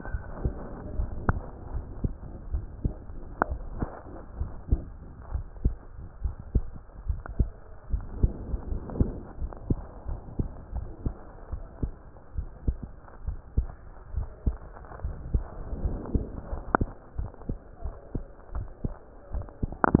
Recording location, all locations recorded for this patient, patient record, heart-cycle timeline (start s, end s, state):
mitral valve (MV)
aortic valve (AV)+pulmonary valve (PV)+tricuspid valve (TV)+mitral valve (MV)
#Age: Child
#Sex: Male
#Height: 129.0 cm
#Weight: 22.3 kg
#Pregnancy status: False
#Murmur: Present
#Murmur locations: pulmonary valve (PV)+tricuspid valve (TV)
#Most audible location: pulmonary valve (PV)
#Systolic murmur timing: Late-systolic
#Systolic murmur shape: Diamond
#Systolic murmur grading: I/VI
#Systolic murmur pitch: Low
#Systolic murmur quality: Harsh
#Diastolic murmur timing: nan
#Diastolic murmur shape: nan
#Diastolic murmur grading: nan
#Diastolic murmur pitch: nan
#Diastolic murmur quality: nan
#Outcome: Abnormal
#Campaign: 2015 screening campaign
0.00	1.40	unannotated
1.40	1.74	diastole
1.74	1.86	S1
1.86	2.02	systole
2.02	2.16	S2
2.16	2.52	diastole
2.52	2.68	S1
2.68	2.84	systole
2.84	2.98	S2
2.98	3.48	diastole
3.48	3.62	S1
3.62	3.80	systole
3.80	3.92	S2
3.92	4.36	diastole
4.36	4.52	S1
4.52	4.70	systole
4.70	4.84	S2
4.84	5.30	diastole
5.30	5.46	S1
5.46	5.64	systole
5.64	5.78	S2
5.78	6.24	diastole
6.24	6.36	S1
6.36	6.54	systole
6.54	6.68	S2
6.68	7.04	diastole
7.04	7.18	S1
7.18	7.38	systole
7.38	7.52	S2
7.52	7.88	diastole
7.88	8.04	S1
8.04	8.18	systole
8.18	8.34	S2
8.34	8.70	diastole
8.70	8.84	S1
8.84	8.98	systole
8.98	9.14	S2
9.14	9.37	diastole
9.37	9.48	S1
9.48	9.66	systole
9.66	9.80	S2
9.80	10.04	diastole
10.04	10.17	S1
10.17	10.36	systole
10.36	10.46	S2
10.46	10.72	diastole
10.72	10.88	S1
10.88	11.04	systole
11.04	11.14	S2
11.14	11.49	diastole
11.49	11.62	S1
11.62	11.78	systole
11.78	11.92	S2
11.92	12.35	diastole
12.35	12.48	S1
12.48	12.64	systole
12.64	12.78	S2
12.78	13.24	diastole
13.24	13.38	S1
13.38	13.54	systole
13.54	13.70	S2
13.70	14.12	diastole
14.12	14.28	S1
14.28	14.42	systole
14.42	14.56	S2
14.56	15.04	diastole
15.04	15.16	S1
15.16	15.32	systole
15.32	15.46	S2
15.46	15.82	diastole
15.82	16.00	S1
16.00	16.13	systole
16.13	16.25	S2
16.25	16.49	diastole
16.49	20.00	unannotated